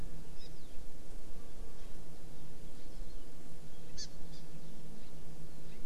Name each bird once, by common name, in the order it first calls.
Hawaii Amakihi